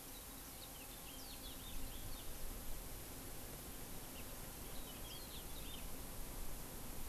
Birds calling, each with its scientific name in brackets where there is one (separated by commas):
Warbling White-eye (Zosterops japonicus), House Finch (Haemorhous mexicanus)